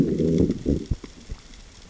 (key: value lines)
label: biophony, growl
recorder: SoundTrap 600 or HydroMoth